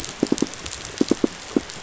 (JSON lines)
{"label": "biophony, pulse", "recorder": "SoundTrap 500"}